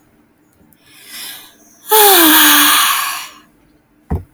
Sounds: Sigh